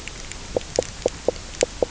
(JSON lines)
{"label": "biophony, knock croak", "recorder": "SoundTrap 300"}